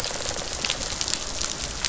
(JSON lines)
{"label": "biophony", "recorder": "SoundTrap 500"}